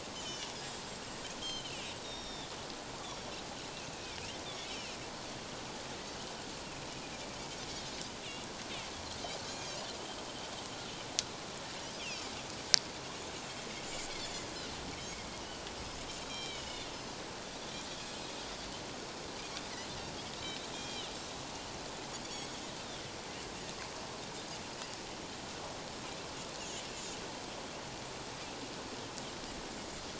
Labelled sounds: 0.1	0.5	Pacific white-sided dolphin, 2.8 to 3.1 kHz
1.4	2.5	Pacific white-sided dolphin, 2.8 to 5.7 kHz
3.9	5.0	Pacific white-sided dolphin, 2.1 to 3.2 kHz
9.5	9.8	Pacific white-sided dolphin, 3.1 to 6.5 kHz
12.0	12.2	Pacific white-sided dolphin, 2.3 to 3.5 kHz
16.2	16.9	Pacific white-sided dolphin, 2.2 to 5.7 kHz
18.0	18.3	Pacific white-sided dolphin, 4.1 to 7.7 kHz
20.7	21.1	Pacific white-sided dolphin, 2.3 to 7.4 kHz
22.2	22.6	Pacific white-sided dolphin, 3.2 to 6.8 kHz
26.6	27.2	Pacific white-sided dolphin, 6.6 to 7.2 kHz

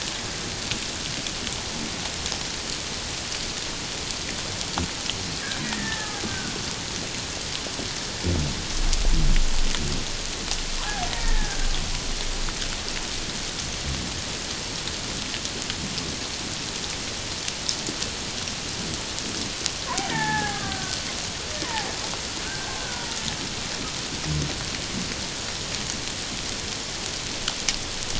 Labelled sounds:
5.6	6.5	killer whale, Bigg's (transient), 0.81 to 2.0 kHz
11.2	11.7	killer whale, Bigg's (transient), 1.5 to 1.9 kHz
20.1	21.9	killer whale, Bigg's (transient), 0.78 to 2.0 kHz
22.4	23.2	killer whale, Bigg's (transient), 0.88 to 1.6 kHz

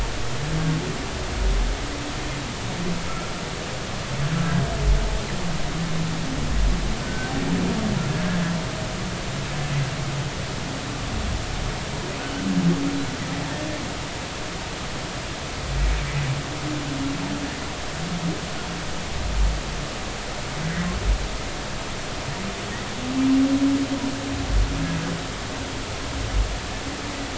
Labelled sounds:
7.0	7.3	humpback whale, 1.5 to 1.6 kHz

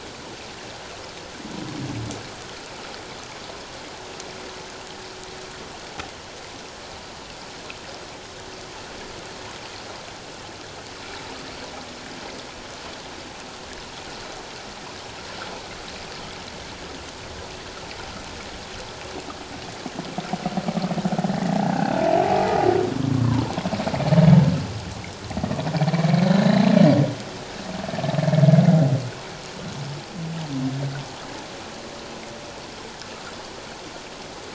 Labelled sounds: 21.5	22.0	humpback whale, 0.78 to 2.8 kHz
23.0	23.5	humpback whale, 0.88 to 1.2 kHz
25.9	26.6	humpback whale, 1.7 to 2.4 kHz

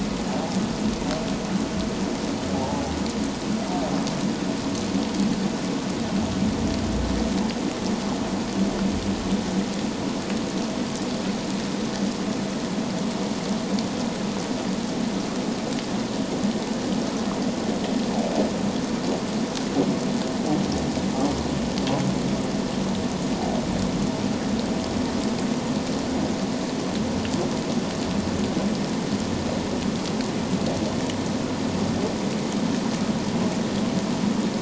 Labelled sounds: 2.5	2.8	humpback whale, 0.78 to 0.97 kHz

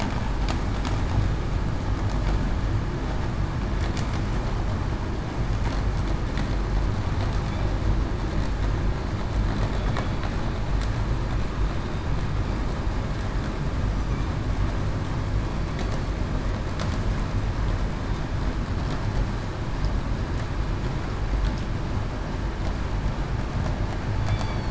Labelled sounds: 24.3	24.6	killer whale, southern resident, 3.3 to 3.5 kHz

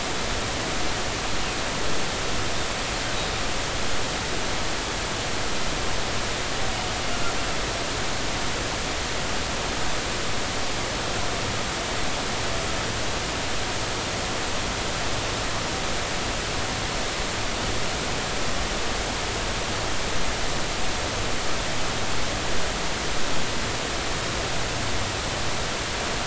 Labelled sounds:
3.1	3.4	humpback whale, 3.6 to 3.9 kHz

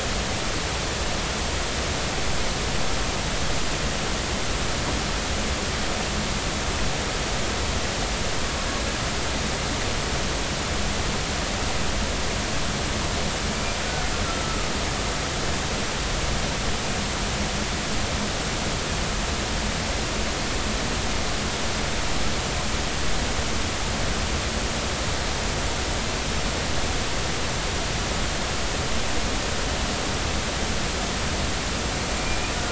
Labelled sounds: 13.8	14.7	killer whale, Bigg's (transient), 1.2 to 1.5 kHz

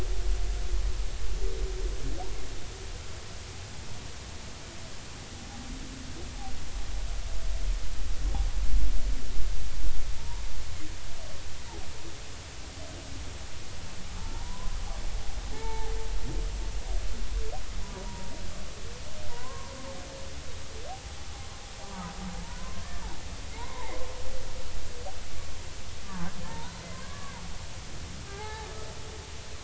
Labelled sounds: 10.2	10.4	humpback whale, 0.86 to 1.1 kHz
14.3	14.8	humpback whale, 0.83 to 1.1 kHz
15.5	15.9	humpback whale, 0.80 to 2.3 kHz
18.0	18.3	humpback whale, 0.90 to 0.99 kHz
19.3	19.7	humpback whale, 0.90 to 1.1 kHz
22.6	24.0	humpback whale, 0.80 to 2.3 kHz
26.0	27.3	humpback whale, 0.80 to 1.8 kHz
28.2	28.7	humpback whale, 0.80 to 2.2 kHz

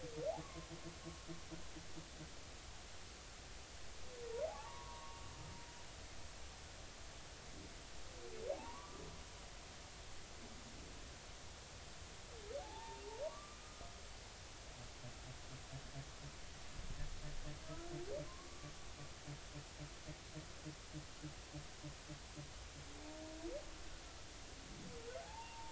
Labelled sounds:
0.4	0.7	humpback whale, 0.99 to 1.2 kHz
4.5	5.2	humpback whale, 0.80 to 1.2 kHz
8.5	9.0	humpback whale, 0.80 to 1.2 kHz
12.6	13.6	humpback whale, 0.80 to 1.2 kHz
18.3	18.7	humpback whale, 0.99 to 1.2 kHz
25.2	25.7	humpback whale, 0.80 to 0.99 kHz

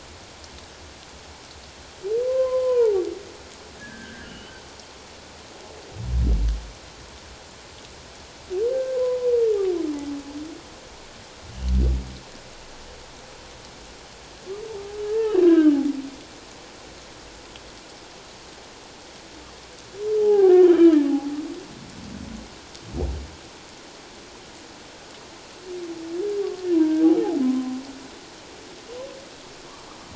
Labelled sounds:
2.2	3.1	humpback whale, 0.78 to 3.2 kHz
3.8	4.5	humpback whale, 1.4 to 3.1 kHz
8.7	9.3	humpback whale, 0.94 to 1.6 kHz
15.1	15.7	humpback whale, 1.5 to 2.8 kHz
20.2	21.0	humpback whale, 0.78 to 3.2 kHz
26.7	27.7	humpback whale, 0.91 to 1.6 kHz

